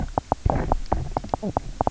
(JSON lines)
{"label": "biophony, knock croak", "recorder": "SoundTrap 300"}